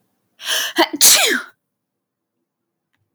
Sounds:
Sneeze